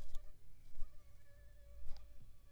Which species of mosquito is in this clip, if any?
Aedes aegypti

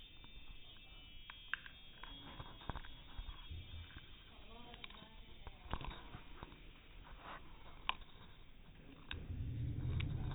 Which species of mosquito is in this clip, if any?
no mosquito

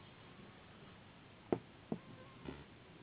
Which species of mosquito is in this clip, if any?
Anopheles gambiae s.s.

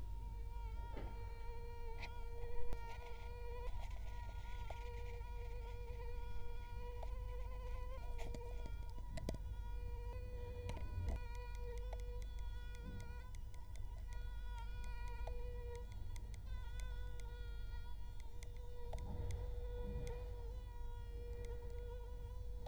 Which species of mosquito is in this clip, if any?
Culex quinquefasciatus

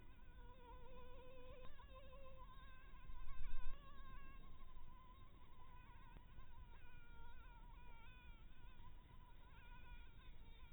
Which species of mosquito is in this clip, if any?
Anopheles harrisoni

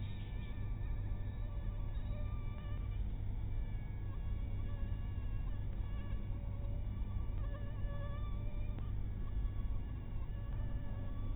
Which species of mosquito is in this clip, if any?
mosquito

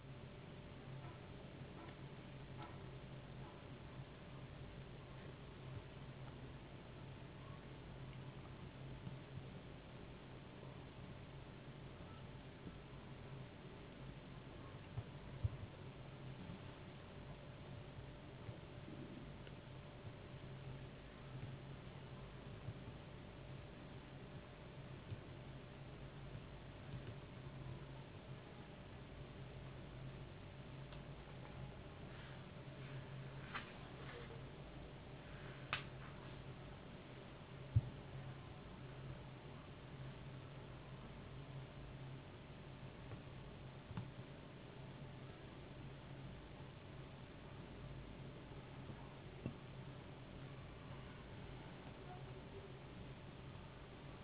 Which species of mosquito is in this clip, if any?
no mosquito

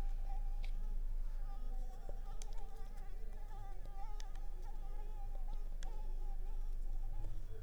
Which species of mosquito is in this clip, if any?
Anopheles ziemanni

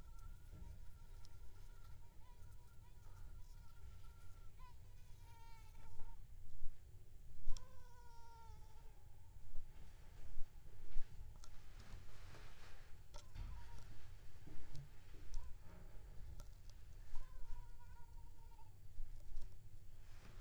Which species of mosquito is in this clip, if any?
Aedes aegypti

